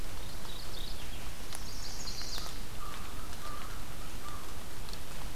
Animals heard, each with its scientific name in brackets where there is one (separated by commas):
Mourning Warbler (Geothlypis philadelphia), Chestnut-sided Warbler (Setophaga pensylvanica), American Crow (Corvus brachyrhynchos)